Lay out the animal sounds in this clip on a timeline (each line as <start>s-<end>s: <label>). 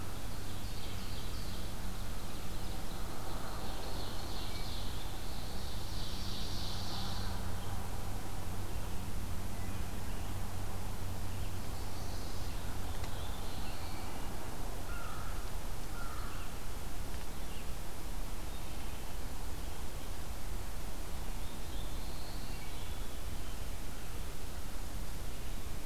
0.0s-1.7s: Ovenbird (Seiurus aurocapilla)
2.9s-7.4s: Ovenbird (Seiurus aurocapilla)
12.8s-14.2s: Black-throated Blue Warbler (Setophaga caerulescens)
14.6s-16.6s: American Crow (Corvus brachyrhynchos)
21.2s-22.7s: Black-throated Blue Warbler (Setophaga caerulescens)